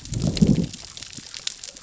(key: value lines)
label: biophony, growl
recorder: SoundTrap 600 or HydroMoth